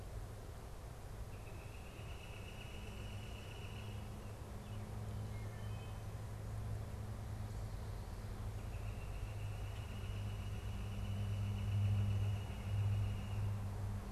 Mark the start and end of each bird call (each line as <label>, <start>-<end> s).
Northern Flicker (Colaptes auratus), 1.1-4.3 s
Wood Thrush (Hylocichla mustelina), 5.1-6.2 s
Northern Flicker (Colaptes auratus), 8.0-13.8 s